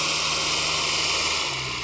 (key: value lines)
label: anthrophony, boat engine
recorder: SoundTrap 300